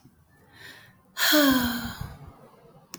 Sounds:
Sigh